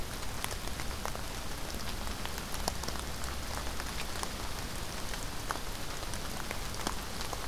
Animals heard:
forest ambience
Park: Acadia National Park